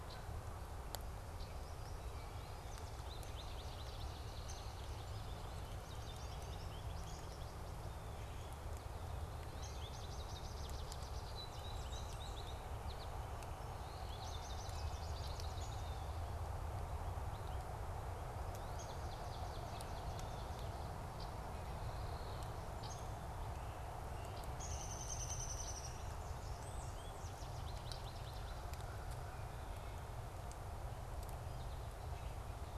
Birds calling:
Swamp Sparrow (Melospiza georgiana)
Red-winged Blackbird (Agelaius phoeniceus)
Common Grackle (Quiscalus quiscula)
American Goldfinch (Spinus tristis)
Solitary Sandpiper (Tringa solitaria)
Downy Woodpecker (Dryobates pubescens)

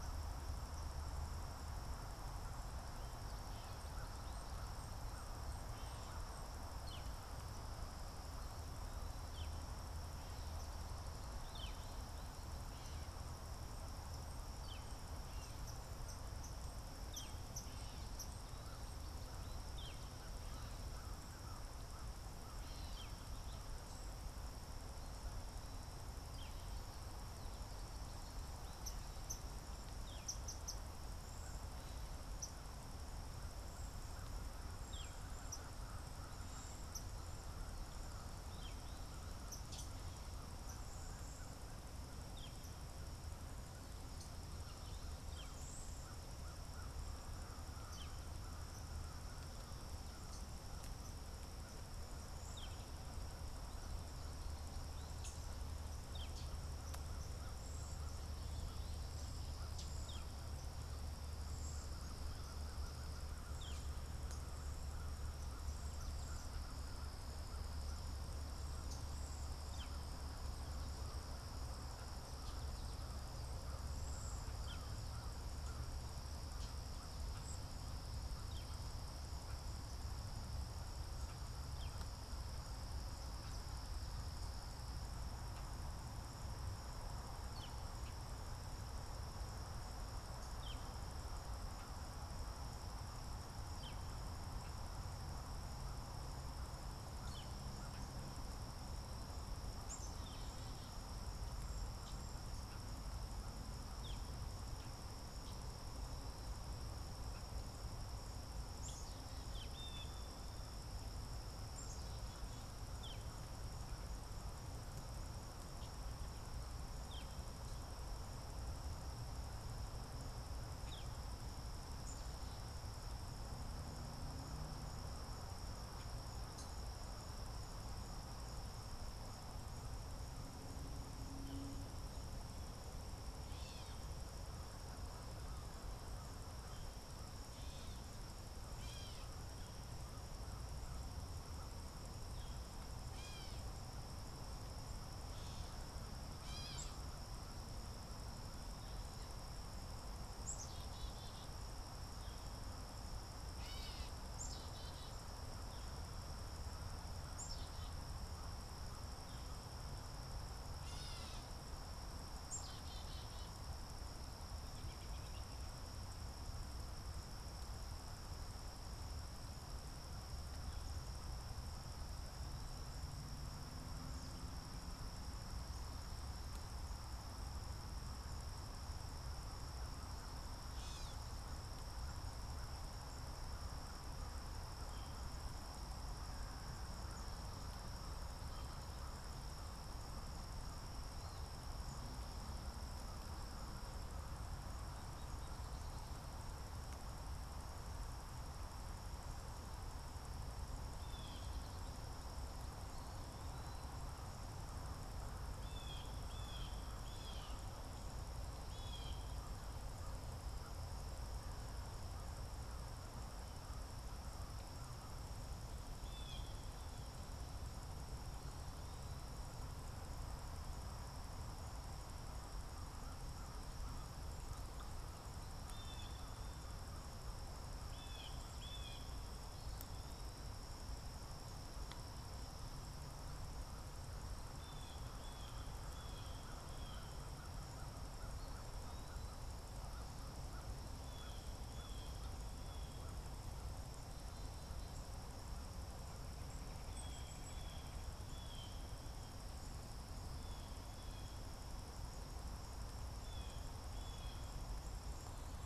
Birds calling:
Red-bellied Woodpecker (Melanerpes carolinus)
American Robin (Turdus migratorius)
Blue Jay (Cyanocitta cristata)
American Crow (Corvus brachyrhynchos)
Cedar Waxwing (Bombycilla cedrorum)
Swamp Sparrow (Melospiza georgiana)
Gray Catbird (Dumetella carolinensis)
Northern Flicker (Colaptes auratus)
Black-capped Chickadee (Poecile atricapillus)
Eastern Wood-Pewee (Contopus virens)

